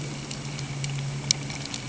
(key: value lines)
label: anthrophony, boat engine
recorder: HydroMoth